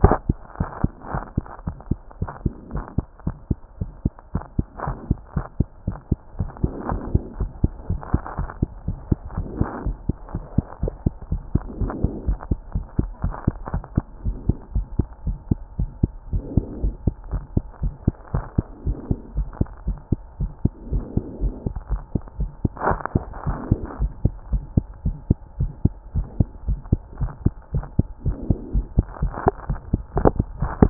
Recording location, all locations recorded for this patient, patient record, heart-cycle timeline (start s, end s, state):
mitral valve (MV)
aortic valve (AV)+mitral valve (MV)
#Age: Child
#Sex: Male
#Height: 99.0 cm
#Weight: 14.2 kg
#Pregnancy status: False
#Murmur: Present
#Murmur locations: aortic valve (AV)+mitral valve (MV)
#Most audible location: mitral valve (MV)
#Systolic murmur timing: Holosystolic
#Systolic murmur shape: Plateau
#Systolic murmur grading: I/VI
#Systolic murmur pitch: Medium
#Systolic murmur quality: Blowing
#Diastolic murmur timing: nan
#Diastolic murmur shape: nan
#Diastolic murmur grading: nan
#Diastolic murmur pitch: nan
#Diastolic murmur quality: nan
#Outcome: Normal
#Campaign: 2014 screening campaign
0.00	0.02	diastole
0.02	0.16	S1
0.16	0.28	systole
0.28	0.38	S2
0.38	0.58	diastole
0.58	0.68	S1
0.68	0.82	systole
0.82	0.92	S2
0.92	1.12	diastole
1.12	1.24	S1
1.24	1.36	systole
1.36	1.46	S2
1.46	1.66	diastole
1.66	1.76	S1
1.76	1.90	systole
1.90	1.98	S2
1.98	2.20	diastole
2.20	2.30	S1
2.30	2.44	systole
2.44	2.52	S2
2.52	2.72	diastole
2.72	2.84	S1
2.84	2.96	systole
2.96	3.06	S2
3.06	3.26	diastole
3.26	3.34	S1
3.34	3.50	systole
3.50	3.58	S2
3.58	3.80	diastole
3.80	3.90	S1
3.90	4.04	systole
4.04	4.12	S2
4.12	4.34	diastole
4.34	4.44	S1
4.44	4.58	systole
4.58	4.66	S2
4.66	4.86	diastole
4.86	4.96	S1
4.96	5.08	systole
5.08	5.18	S2
5.18	5.36	diastole
5.36	5.46	S1
5.46	5.58	systole
5.58	5.68	S2
5.68	5.86	diastole
5.86	5.98	S1
5.98	6.10	systole
6.10	6.18	S2
6.18	6.38	diastole
6.38	6.50	S1
6.50	6.62	systole
6.62	6.72	S2
6.72	6.90	diastole
6.90	7.02	S1
7.02	7.12	systole
7.12	7.22	S2
7.22	7.38	diastole
7.38	7.50	S1
7.50	7.62	systole
7.62	7.72	S2
7.72	7.90	diastole
7.90	8.00	S1
8.00	8.12	systole
8.12	8.22	S2
8.22	8.38	diastole
8.38	8.48	S1
8.48	8.60	systole
8.60	8.70	S2
8.70	8.86	diastole
8.86	8.98	S1
8.98	9.10	systole
9.10	9.18	S2
9.18	9.36	diastole
9.36	9.48	S1
9.48	9.58	systole
9.58	9.66	S2
9.66	9.84	diastole
9.84	9.96	S1
9.96	10.08	systole
10.08	10.16	S2
10.16	10.34	diastole
10.34	10.44	S1
10.44	10.56	systole
10.56	10.66	S2
10.66	10.82	diastole
10.82	10.92	S1
10.92	11.04	systole
11.04	11.14	S2
11.14	11.30	diastole
11.30	11.42	S1
11.42	11.54	systole
11.54	11.62	S2
11.62	11.80	diastole
11.80	11.92	S1
11.92	12.02	systole
12.02	12.12	S2
12.12	12.26	diastole
12.26	12.38	S1
12.38	12.50	systole
12.50	12.58	S2
12.58	12.74	diastole
12.74	12.86	S1
12.86	12.98	systole
12.98	13.08	S2
13.08	13.24	diastole
13.24	13.34	S1
13.34	13.46	systole
13.46	13.56	S2
13.56	13.72	diastole
13.72	13.84	S1
13.84	13.96	systole
13.96	14.04	S2
14.04	14.24	diastole
14.24	14.36	S1
14.36	14.48	systole
14.48	14.56	S2
14.56	14.74	diastole
14.74	14.86	S1
14.86	14.98	systole
14.98	15.06	S2
15.06	15.26	diastole
15.26	15.38	S1
15.38	15.50	systole
15.50	15.58	S2
15.58	15.78	diastole
15.78	15.90	S1
15.90	16.02	systole
16.02	16.10	S2
16.10	16.32	diastole
16.32	16.44	S1
16.44	16.56	systole
16.56	16.64	S2
16.64	16.82	diastole
16.82	16.94	S1
16.94	17.06	systole
17.06	17.14	S2
17.14	17.32	diastole
17.32	17.42	S1
17.42	17.54	systole
17.54	17.64	S2
17.64	17.82	diastole
17.82	17.94	S1
17.94	18.06	systole
18.06	18.14	S2
18.14	18.34	diastole
18.34	18.44	S1
18.44	18.56	systole
18.56	18.66	S2
18.66	18.86	diastole
18.86	18.98	S1
18.98	19.10	systole
19.10	19.18	S2
19.18	19.36	diastole
19.36	19.48	S1
19.48	19.60	systole
19.60	19.68	S2
19.68	19.86	diastole
19.86	19.98	S1
19.98	20.10	systole
20.10	20.20	S2
20.20	20.40	diastole
20.40	20.52	S1
20.52	20.64	systole
20.64	20.72	S2
20.72	20.92	diastole
20.92	21.04	S1
21.04	21.16	systole
21.16	21.24	S2
21.24	21.42	diastole
21.42	21.54	S1
21.54	21.66	systole
21.66	21.74	S2
21.74	21.90	diastole
21.90	22.02	S1
22.02	22.14	systole
22.14	22.22	S2
22.22	22.38	diastole
22.38	22.50	S1
22.50	22.62	systole
22.62	22.70	S2
22.70	22.88	diastole
22.88	23.00	S1
23.00	23.14	systole
23.14	23.24	S2
23.24	23.46	diastole
23.46	23.58	S1
23.58	23.70	systole
23.70	23.80	S2
23.80	24.00	diastole
24.00	24.12	S1
24.12	24.24	systole
24.24	24.34	S2
24.34	24.52	diastole
24.52	24.64	S1
24.64	24.76	systole
24.76	24.86	S2
24.86	25.04	diastole
25.04	25.16	S1
25.16	25.28	systole
25.28	25.36	S2
25.36	25.58	diastole
25.58	25.72	S1
25.72	25.84	systole
25.84	25.92	S2
25.92	26.16	diastole
26.16	26.26	S1
26.26	26.38	systole
26.38	26.48	S2
26.48	26.66	diastole
26.66	26.80	S1
26.80	26.90	systole
26.90	27.00	S2
27.00	27.20	diastole
27.20	27.32	S1
27.32	27.44	systole
27.44	27.54	S2
27.54	27.74	diastole
27.74	27.86	S1
27.86	27.98	systole
27.98	28.06	S2
28.06	28.26	diastole
28.26	28.36	S1
28.36	28.48	systole
28.48	28.58	S2
28.58	28.74	diastole
28.74	28.86	S1
28.86	28.96	systole
28.96	29.06	S2
29.06	29.22	diastole
29.22	29.32	S1
29.32	29.44	systole
29.44	29.54	S2
29.54	29.72	diastole
29.72	29.80	S1
29.80	29.92	systole
29.92	30.02	S2
30.02	30.18	diastole
30.18	30.32	S1
30.32	30.40	systole
30.40	30.46	S2
30.46	30.60	diastole
30.60	30.72	S1
30.72	30.80	systole
30.80	30.90	S2